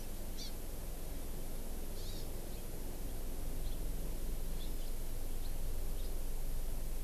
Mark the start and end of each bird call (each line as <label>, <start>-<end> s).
Hawaii Amakihi (Chlorodrepanis virens), 0.3-0.5 s
Hawaii Amakihi (Chlorodrepanis virens), 1.9-2.2 s
House Finch (Haemorhous mexicanus), 3.6-3.7 s
House Finch (Haemorhous mexicanus), 5.9-6.1 s